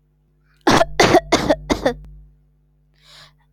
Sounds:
Cough